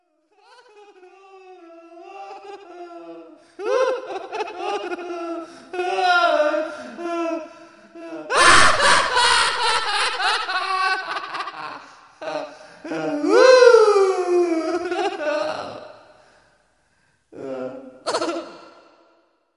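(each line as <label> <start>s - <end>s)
A man laughs loudly with an echo gradually increasing nearby. 0.0s - 16.3s
A man laughs loudly with an echo gradually increasing nearby. 17.2s - 19.6s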